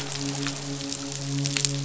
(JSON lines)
{"label": "biophony, midshipman", "recorder": "SoundTrap 500"}